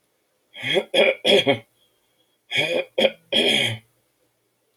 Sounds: Throat clearing